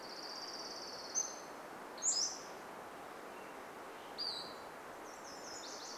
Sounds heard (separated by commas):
Pacific-slope Flycatcher call, Nashville Warbler song, Pacific-slope Flycatcher song, Orange-crowned Warbler song